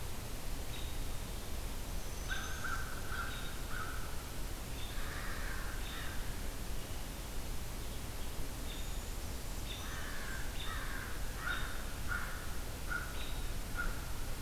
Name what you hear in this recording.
American Robin, American Crow, Black-throated Green Warbler